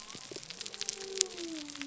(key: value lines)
label: biophony
recorder: SoundTrap 300